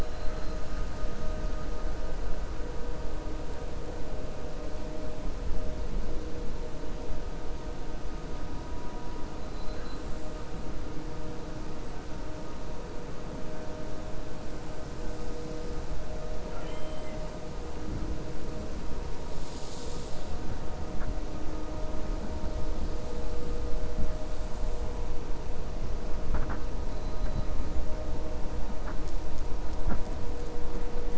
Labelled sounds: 16.4	17.2	killer whale, 0.70 to 3.2 kHz

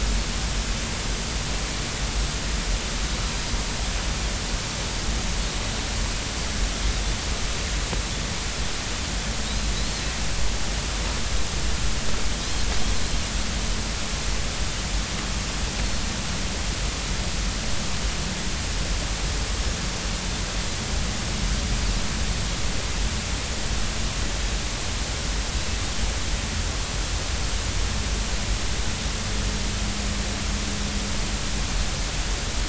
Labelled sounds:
9.7	10.0	Pacific white-sided dolphin, 3.8 to 4.4 kHz
12.4	12.7	Pacific white-sided dolphin, 3.8 to 4.3 kHz

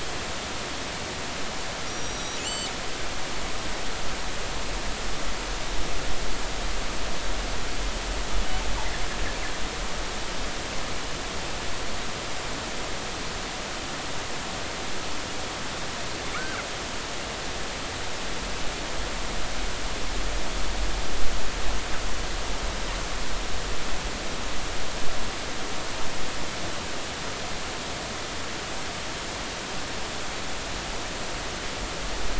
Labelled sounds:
1.9	2.7	killer whale, northern resident, G clan, call N23i, 2.5 to 7.7 kHz
16.3	16.6	killer whale, northern resident, G clan, GI subclan, call N23i, 1.1 to 1.7 kHz

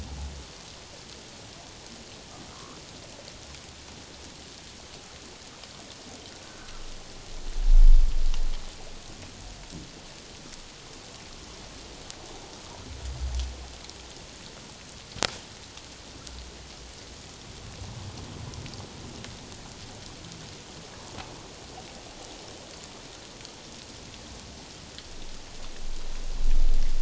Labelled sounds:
6.4	6.7	humpback whale, 1.3 to 1.6 kHz

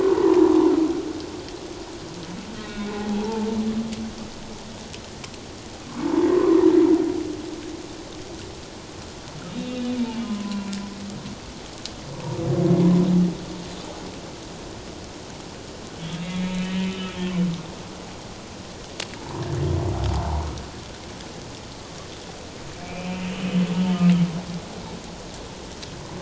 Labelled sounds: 2.6	3.5	humpback whale, 0.78 to 2.4 kHz
6.0	6.6	humpback whale, 0.84 to 1.2 kHz
9.5	10.7	humpback whale, 0.94 to 3.8 kHz
16.3	17.2	humpback whale, 2.0 to 3.1 kHz
19.2	19.5	humpback whale, 0.84 to 1.2 kHz
22.8	24.0	humpback whale, 2.2 to 3.2 kHz

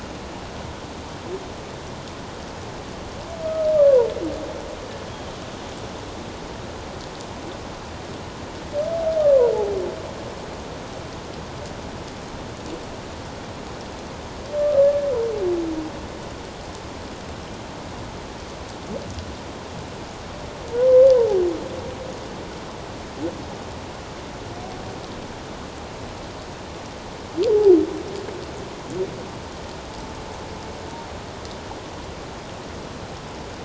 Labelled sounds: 3.8	4.1	humpback whale, 0.88 to 1.2 kHz
9.2	9.5	humpback whale, 0.91 to 1.2 kHz

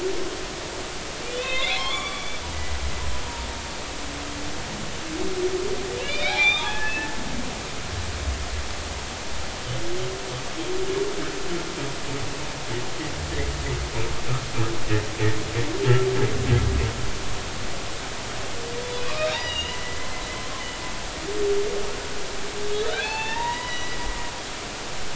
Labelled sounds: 1.3	2.8	humpback whale, 0.80 to 4.2 kHz
6.0	7.2	humpback whale, 0.80 to 4.2 kHz
19.0	20.1	humpback whale, 1.1 to 3.9 kHz
22.8	24.1	humpback whale, 0.80 to 6.0 kHz

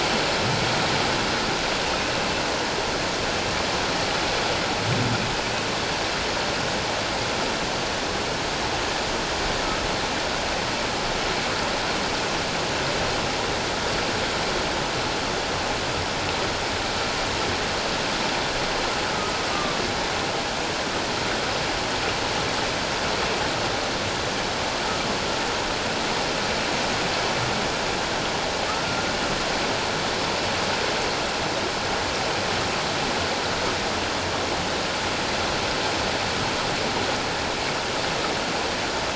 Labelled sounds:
1.8	2.1	humpback whale, 2.4 to 2.8 kHz
19.5	19.8	humpback whale, 1.0 to 1.2 kHz

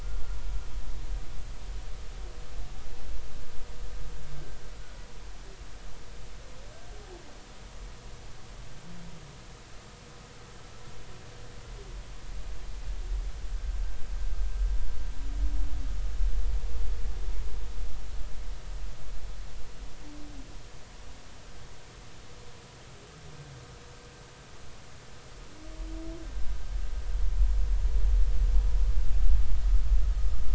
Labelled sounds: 4.7	5.0	humpback whale, 1.3 to 1.5 kHz

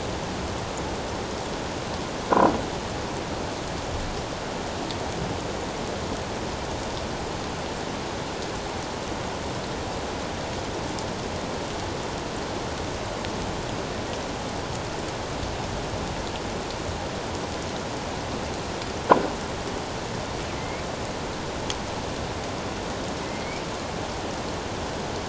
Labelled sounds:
20.6	20.8	killer whale, northern resident, A clan, AA subclan, 2.0 to 2.3 kHz
23.2	23.6	killer whale, northern resident, A clan, AA subclan, 2.0 to 2.4 kHz

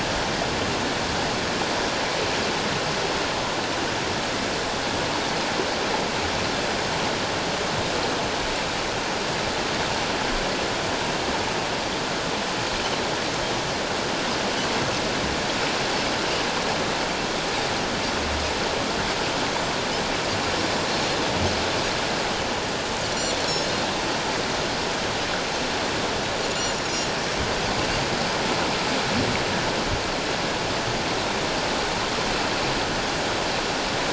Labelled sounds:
23.1	23.4	Pacific white-sided dolphin, 5.7 to 5.9 kHz
26.5	26.8	Pacific white-sided dolphin, 6.7 to 7.2 kHz

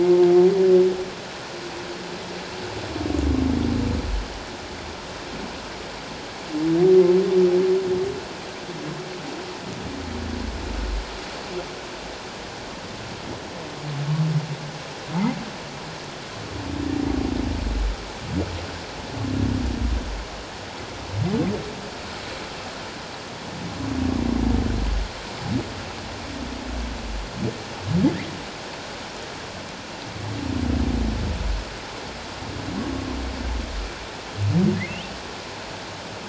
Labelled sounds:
34.7	35.0	humpback whale, 1.7 to 2.2 kHz

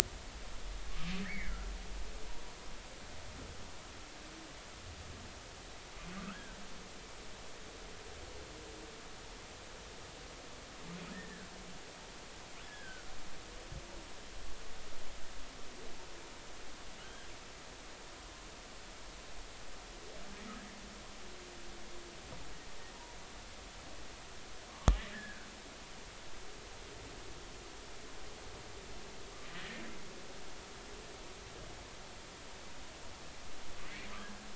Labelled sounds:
1.2	1.7	humpback whale, 1.3 to 2.3 kHz
6.2	6.6	humpback whale, 1.1 to 1.7 kHz
12.6	13.1	humpback whale, 1.4 to 1.8 kHz
25.1	25.5	humpback whale, 1.4 to 1.9 kHz
29.5	29.8	humpback whale, 1.7 to 2.0 kHz

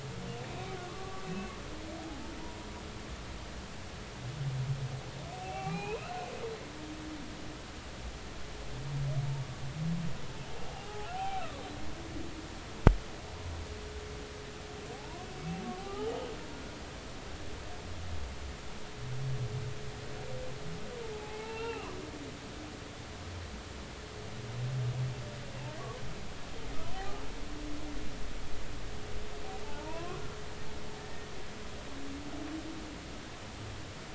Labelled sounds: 0.5	1.5	humpback whale, 1.0 to 2.7 kHz
2.0	2.7	humpback whale, 0.80 to 1.0 kHz
5.3	6.1	humpback whale, 0.80 to 2.8 kHz
10.6	11.7	humpback whale, 0.80 to 1.5 kHz
14.9	16.1	humpback whale, 0.80 to 1.3 kHz
21.0	22.0	humpback whale, 0.80 to 2.8 kHz
26.9	27.2	humpback whale, 0.80 to 0.93 kHz
29.6	30.2	humpback whale, 0.83 to 2.8 kHz
31.0	31.3	humpback whale, 1.8 to 1.9 kHz

